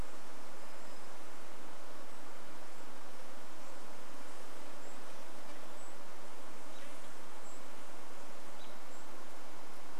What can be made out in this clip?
insect buzz, Golden-crowned Kinglet call, American Robin call